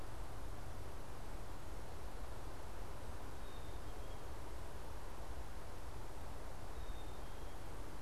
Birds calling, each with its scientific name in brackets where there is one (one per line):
Black-capped Chickadee (Poecile atricapillus)